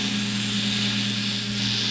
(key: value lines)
label: anthrophony, boat engine
recorder: SoundTrap 500